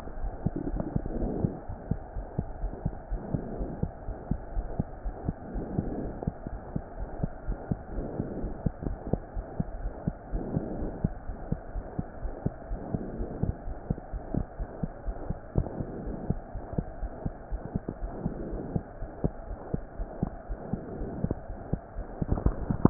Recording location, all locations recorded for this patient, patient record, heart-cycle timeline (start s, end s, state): aortic valve (AV)
aortic valve (AV)+pulmonary valve (PV)+tricuspid valve (TV)+mitral valve (MV)
#Age: Child
#Sex: Female
#Height: 88.0 cm
#Weight: 12.5 kg
#Pregnancy status: False
#Murmur: Present
#Murmur locations: aortic valve (AV)+mitral valve (MV)+pulmonary valve (PV)+tricuspid valve (TV)
#Most audible location: tricuspid valve (TV)
#Systolic murmur timing: Holosystolic
#Systolic murmur shape: Plateau
#Systolic murmur grading: II/VI
#Systolic murmur pitch: Low
#Systolic murmur quality: Blowing
#Diastolic murmur timing: nan
#Diastolic murmur shape: nan
#Diastolic murmur grading: nan
#Diastolic murmur pitch: nan
#Diastolic murmur quality: nan
#Outcome: Abnormal
#Campaign: 2015 screening campaign
0.00	1.54	unannotated
1.54	1.68	diastole
1.68	1.78	S1
1.78	1.90	systole
1.90	2.00	S2
2.00	2.14	diastole
2.14	2.26	S1
2.26	2.34	systole
2.34	2.46	S2
2.46	2.62	diastole
2.62	2.74	S1
2.74	2.84	systole
2.84	2.96	S2
2.96	3.10	diastole
3.10	3.22	S1
3.22	3.30	systole
3.30	3.44	S2
3.44	3.58	diastole
3.58	3.70	S1
3.70	3.80	systole
3.80	3.90	S2
3.90	4.06	diastole
4.06	4.18	S1
4.18	4.30	systole
4.30	4.42	S2
4.42	4.56	diastole
4.56	4.68	S1
4.68	4.76	systole
4.76	4.88	S2
4.88	5.04	diastole
5.04	5.14	S1
5.14	5.24	systole
5.24	5.36	S2
5.36	5.50	diastole
5.50	5.64	S1
5.64	5.72	systole
5.72	5.86	S2
5.86	5.98	diastole
5.98	6.12	S1
6.12	6.22	systole
6.22	6.34	S2
6.34	6.52	diastole
6.52	6.60	S1
6.60	6.72	systole
6.72	6.82	S2
6.82	6.98	diastole
6.98	7.10	S1
7.10	7.20	systole
7.20	7.30	S2
7.30	7.46	diastole
7.46	7.58	S1
7.58	7.70	systole
7.70	7.78	S2
7.78	7.94	diastole
7.94	8.10	S1
8.10	8.18	systole
8.18	8.28	S2
8.28	8.42	diastole
8.42	8.54	S1
8.54	8.62	systole
8.62	8.72	S2
8.72	8.86	diastole
8.86	8.98	S1
8.98	9.08	systole
9.08	9.20	S2
9.20	9.36	diastole
9.36	9.44	S1
9.44	9.56	systole
9.56	9.68	S2
9.68	9.80	diastole
9.80	9.94	S1
9.94	10.06	systole
10.06	10.16	S2
10.16	10.32	diastole
10.32	10.45	S1
10.45	10.53	systole
10.53	10.64	S2
10.64	10.76	diastole
10.76	10.92	S1
10.92	11.02	systole
11.02	11.14	S2
11.14	11.28	diastole
11.28	11.36	S1
11.36	11.48	systole
11.48	11.60	S2
11.60	11.76	diastole
11.76	11.84	S1
11.84	11.94	systole
11.94	12.06	S2
12.06	12.22	diastole
12.22	12.34	S1
12.34	12.42	systole
12.42	12.54	S2
12.54	12.70	diastole
12.70	12.80	S1
12.80	12.90	systole
12.90	13.02	S2
13.02	13.18	diastole
13.18	13.32	S1
13.32	13.40	systole
13.40	13.56	S2
13.56	13.67	diastole
13.67	13.78	S1
13.78	13.86	systole
13.86	13.98	S2
13.98	14.14	diastole
14.14	14.22	S1
14.22	14.32	systole
14.32	14.46	S2
14.46	14.60	diastole
14.60	14.68	S1
14.68	14.82	systole
14.82	14.90	S2
14.90	15.06	diastole
15.06	15.16	S1
15.16	15.28	systole
15.28	15.40	S2
15.40	15.56	diastole
15.56	15.70	S1
15.70	15.78	systole
15.78	15.88	S2
15.88	16.04	diastole
16.04	16.18	S1
16.18	16.28	systole
16.28	16.42	S2
16.42	16.54	diastole
16.54	16.61	S1
16.61	16.76	systole
16.76	16.86	S2
16.86	17.00	diastole
17.00	17.10	S1
17.10	17.22	systole
17.22	17.32	S2
17.32	17.52	diastole
17.52	17.62	S1
17.62	17.74	systole
17.74	17.82	S2
17.82	18.02	diastole
18.02	18.14	S1
18.14	18.24	systole
18.24	18.36	S2
18.36	18.50	diastole
18.50	18.64	S1
18.64	18.74	systole
18.74	18.82	S2
18.82	19.02	diastole
19.02	19.10	S1
19.10	19.20	systole
19.20	19.32	S2
19.32	19.50	diastole
19.50	19.58	S1
19.58	19.70	systole
19.70	19.84	S2
19.84	20.00	diastole
20.00	20.08	S1
20.08	20.18	systole
20.18	20.34	S2
20.34	20.50	diastole
20.50	20.58	S1
20.58	20.70	systole
20.70	20.82	S2
20.82	20.98	diastole
20.98	21.08	S1
21.08	21.18	systole
21.18	21.32	S2
21.32	21.50	diastole
21.50	21.58	S1
21.58	21.68	systole
21.68	21.80	S2
21.80	21.98	diastole
21.98	22.06	S1
22.06	22.19	systole
22.19	22.25	S2
22.25	22.44	diastole
22.44	22.90	unannotated